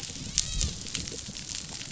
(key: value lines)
label: biophony, dolphin
recorder: SoundTrap 500